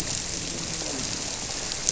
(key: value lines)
label: biophony, grouper
recorder: SoundTrap 300